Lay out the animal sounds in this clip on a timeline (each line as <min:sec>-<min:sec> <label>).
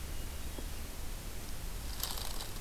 0:00.0-0:01.0 Hermit Thrush (Catharus guttatus)